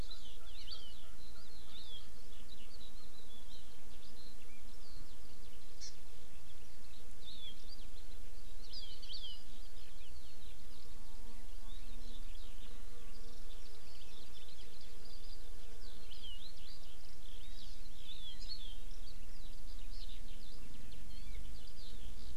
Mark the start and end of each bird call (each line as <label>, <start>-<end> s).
Eurasian Skylark (Alauda arvensis), 0.0-5.5 s
Hawaii Amakihi (Chlorodrepanis virens), 0.1-1.0 s
Hawaii Amakihi (Chlorodrepanis virens), 1.7-2.0 s
Hawaii Amakihi (Chlorodrepanis virens), 5.8-5.9 s
Hawaii Amakihi (Chlorodrepanis virens), 7.2-7.6 s
Eurasian Skylark (Alauda arvensis), 7.6-22.4 s
Hawaii Amakihi (Chlorodrepanis virens), 8.7-9.4 s
Hawaii Amakihi (Chlorodrepanis virens), 16.1-16.6 s
Hawaii Amakihi (Chlorodrepanis virens), 18.1-18.8 s